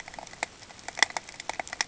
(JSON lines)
{"label": "ambient", "recorder": "HydroMoth"}